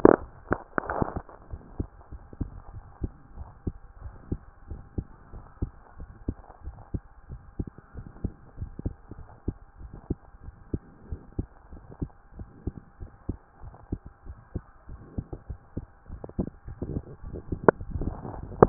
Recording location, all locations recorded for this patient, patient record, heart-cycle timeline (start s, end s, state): tricuspid valve (TV)
pulmonary valve (PV)+tricuspid valve (TV)+mitral valve (MV)
#Age: Child
#Sex: Male
#Height: 140.0 cm
#Weight: 33.7 kg
#Pregnancy status: False
#Murmur: Present
#Murmur locations: tricuspid valve (TV)
#Most audible location: tricuspid valve (TV)
#Systolic murmur timing: Early-systolic
#Systolic murmur shape: Decrescendo
#Systolic murmur grading: I/VI
#Systolic murmur pitch: Low
#Systolic murmur quality: Blowing
#Diastolic murmur timing: nan
#Diastolic murmur shape: nan
#Diastolic murmur grading: nan
#Diastolic murmur pitch: nan
#Diastolic murmur quality: nan
#Outcome: Normal
#Campaign: 2014 screening campaign
0.00	1.50	unannotated
1.50	1.62	S1
1.62	1.78	systole
1.78	1.88	S2
1.88	2.12	diastole
2.12	2.24	S1
2.24	2.40	systole
2.40	2.50	S2
2.50	2.74	diastole
2.74	2.86	S1
2.86	3.02	systole
3.02	3.12	S2
3.12	3.38	diastole
3.38	3.48	S1
3.48	3.66	systole
3.66	3.72	S2
3.72	4.02	diastole
4.02	4.14	S1
4.14	4.30	systole
4.30	4.40	S2
4.40	4.70	diastole
4.70	4.80	S1
4.80	4.96	systole
4.96	5.06	S2
5.06	5.34	diastole
5.34	5.44	S1
5.44	5.60	systole
5.60	5.72	S2
5.72	5.98	diastole
5.98	6.10	S1
6.10	6.26	systole
6.26	6.36	S2
6.36	6.64	diastole
6.64	6.76	S1
6.76	6.92	systole
6.92	7.02	S2
7.02	7.30	diastole
7.30	7.42	S1
7.42	7.58	systole
7.58	7.68	S2
7.68	7.96	diastole
7.96	8.06	S1
8.06	8.22	systole
8.22	8.32	S2
8.32	8.58	diastole
8.58	18.69	unannotated